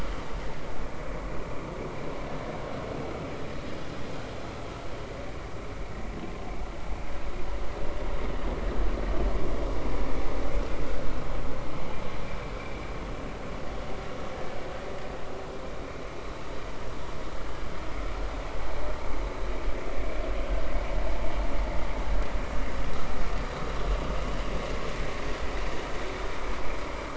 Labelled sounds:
12.6	12.8	vessel noise, 2.2 to 2.5 kHz

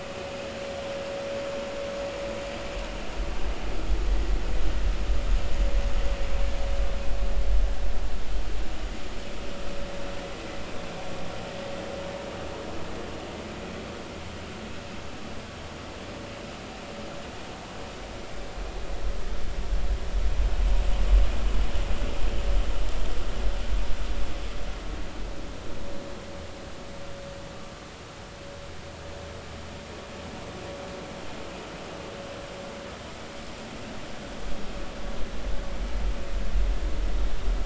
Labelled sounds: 4.1	4.3	vessel noise, 1.8 to 2.0 kHz

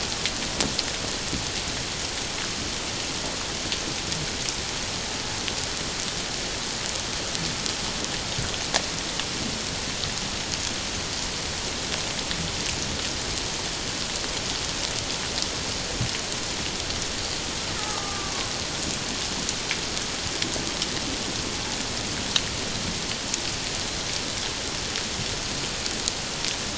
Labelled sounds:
17.7	18.5	killer whale, Bigg's (transient), 0.97 to 1.4 kHz

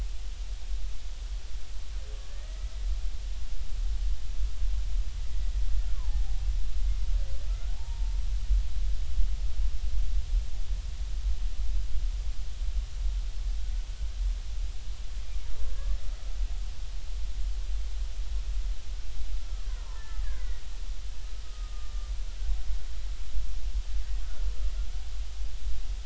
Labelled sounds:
2.2	2.7	killer whale, Bigg's (transient), 1.6 to 2.0 kHz
5.9	6.4	killer whale, Bigg's (transient), 0.80 to 1.2 kHz
7.5	7.8	killer whale, Bigg's (transient), 1.3 to 1.5 kHz
8.7	9.2	killer whale, Bigg's (transient), 0.80 to 0.99 kHz
19.6	20.6	killer whale, Bigg's (transient), 0.86 to 2.1 kHz
21.4	22.1	killer whale, Bigg's (transient), 1.1 to 1.3 kHz

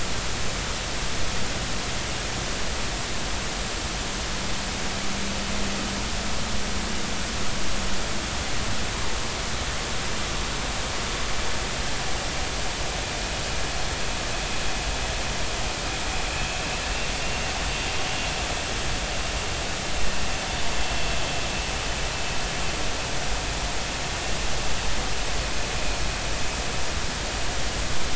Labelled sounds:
16.3	16.7	vessel noise, 2.6 to 2.7 kHz
17.1	17.4	vessel noise, 2.7 to 2.8 kHz

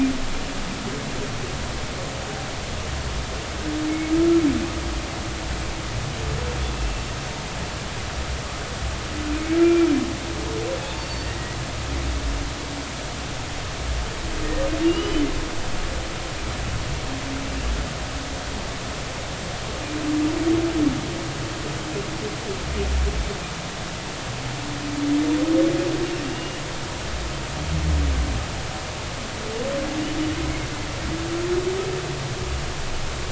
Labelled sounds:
6.7	7.0	humpback whale, 2.6 to 2.8 kHz
9.6	9.9	humpback whale, 2.2 to 2.4 kHz
11.0	11.6	humpback whale, 1.8 to 4.6 kHz
14.8	15.3	humpback whale, 2.8 to 3.1 kHz
26.3	26.6	humpback whale, 2.8 to 2.9 kHz

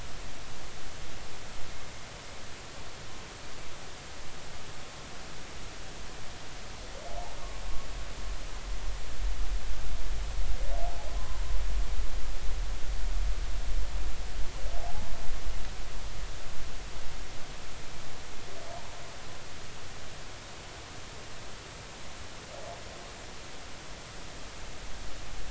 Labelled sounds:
11.2	11.4	humpback whale, 0.99 to 1.1 kHz
14.8	15.1	humpback whale, 0.80 to 1.1 kHz

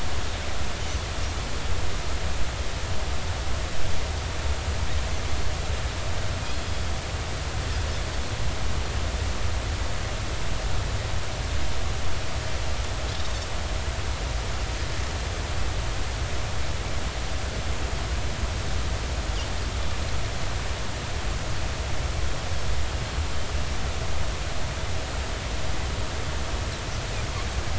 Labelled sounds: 6.4	6.8	Pacific white-sided dolphin, 3.2 to 3.4 kHz

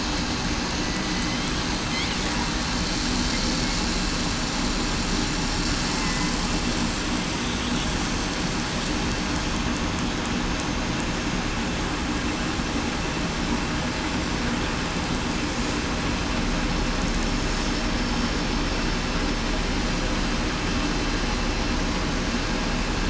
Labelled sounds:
0.8	1.4	killer whale, southern resident, 1.9 to 2.1 kHz
5.9	6.3	killer whale, southern resident, 2.0 to 2.1 kHz

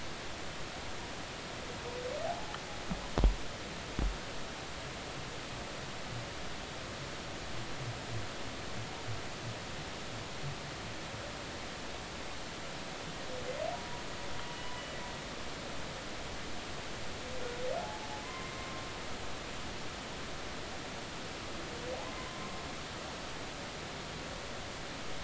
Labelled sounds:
2.2	2.6	humpback whale, 0.80 to 0.90 kHz
13.7	14.7	humpback whale, 0.93 to 3.0 kHz
17.8	18.1	humpback whale, 0.80 to 0.96 kHz
19.2	19.5	humpback whale, 0.96 to 1.1 kHz
22.0	22.6	humpback whale, 0.99 to 1.1 kHz

